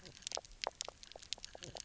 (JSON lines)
{"label": "biophony, knock croak", "recorder": "SoundTrap 300"}